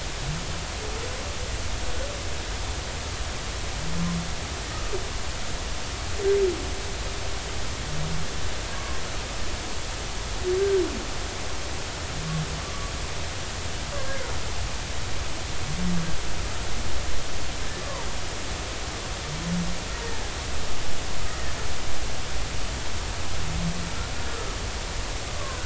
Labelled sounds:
8.8	9.0	humpback whale, 1.0 to 1.2 kHz
12.6	12.9	humpback whale, 0.99 to 1.2 kHz
17.8	18.1	humpback whale, 0.86 to 1.2 kHz
21.3	21.5	humpback whale, 1.7 to 2.0 kHz
25.3	25.6	humpback whale, 0.99 to 1.2 kHz

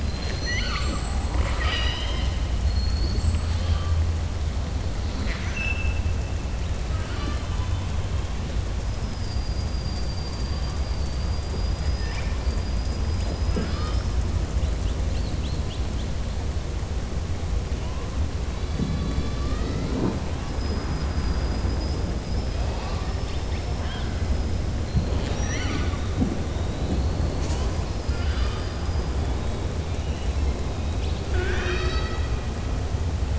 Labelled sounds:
0.0	2.3	killer whale, southern resident, 0.57 to 7.9 kHz
5.1	6.0	killer whale, southern resident, 1.4 to 6.1 kHz
20.5	22.0	killer whale, southern resident, 4.9 to 6.0 kHz
27.9	29.1	killer whale, southern resident, 1.2 to 5.3 kHz

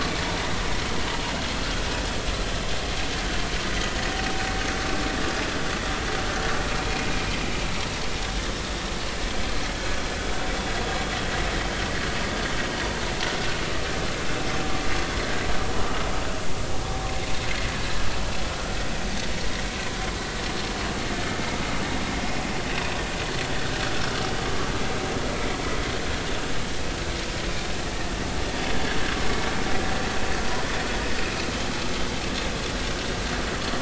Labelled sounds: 11.6	11.8	vessel noise, 3.0 to 3.2 kHz

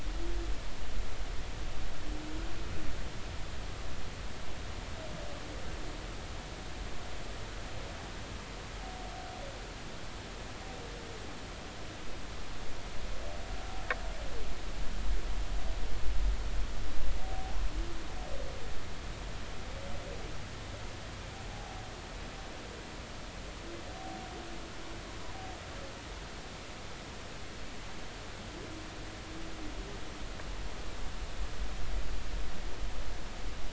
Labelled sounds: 21.5	21.8	humpback whale, 0.80 to 0.86 kHz

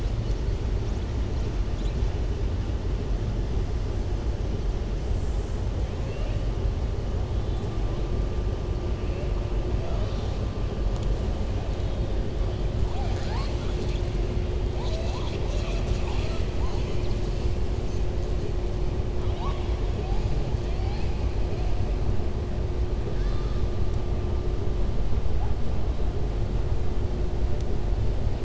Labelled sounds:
6.0	6.4	killer whale, southern resident, 1.8 to 3.3 kHz

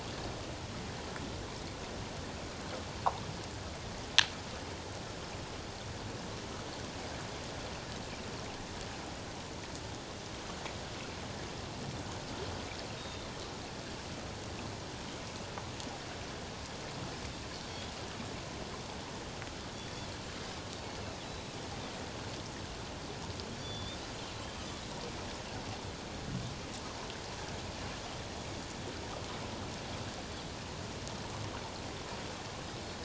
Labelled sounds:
13.0	13.3	Pacific white-sided dolphin, 3.5 to 3.8 kHz
21.2	21.5	Pacific white-sided dolphin, 3.8 to 4.0 kHz
23.6	24.0	Pacific white-sided dolphin, 3.4 to 5.8 kHz

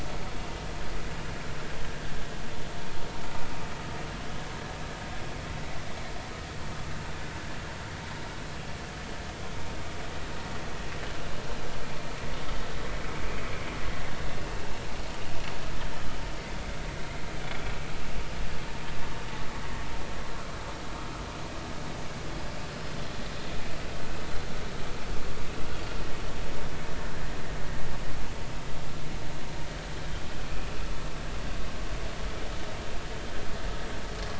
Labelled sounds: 13.1	13.3	vessel noise, 2.1 to 2.3 kHz

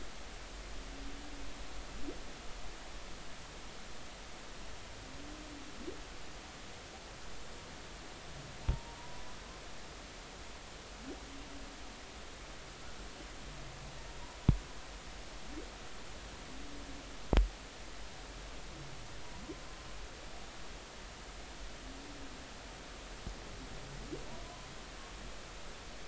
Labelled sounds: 8.6	9.2	humpback whale, 0.86 to 1.0 kHz
24.4	24.7	humpback whale, 0.96 to 1.1 kHz

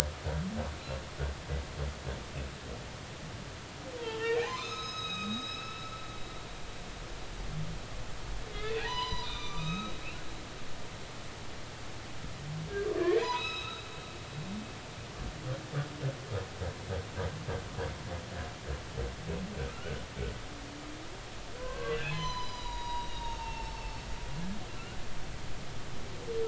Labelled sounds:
4.0	5.8	humpback whale, 0.83 to 6.6 kHz
8.6	10.0	humpback whale, 0.80 to 6.0 kHz
12.9	13.8	humpback whale, 0.80 to 5.3 kHz
19.7	20.0	humpback whale, 1.2 to 1.6 kHz
21.6	23.8	humpback whale, 0.83 to 6.8 kHz

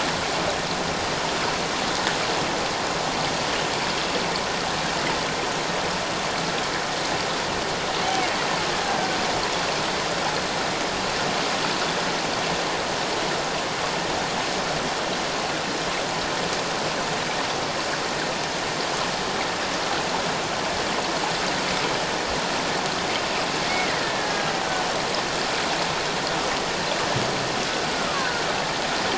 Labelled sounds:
8.8	9.1	killer whale, Bigg's (transient), 1.5 to 1.7 kHz
23.7	24.5	killer whale, Bigg's (transient), 1.6 to 4.2 kHz
27.9	28.4	killer whale, Bigg's (transient), call T08, 1.0 to 1.8 kHz

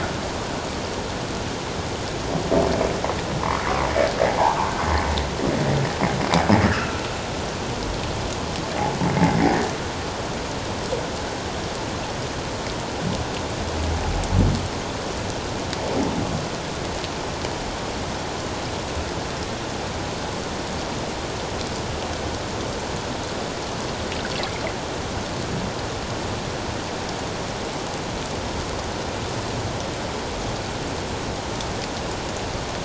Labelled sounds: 4.3	4.6	humpback whale, 0.78 to 1.2 kHz
6.7	7.0	humpback whale, 1.2 to 1.9 kHz
9.2	9.5	humpback whale, 2.0 to 2.2 kHz

